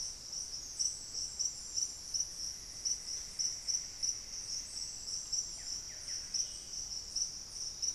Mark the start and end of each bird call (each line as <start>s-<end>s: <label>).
2.1s-5.3s: Cinnamon-throated Woodcreeper (Dendrexetastes rufigula)
5.2s-7.0s: Buff-breasted Wren (Cantorchilus leucotis)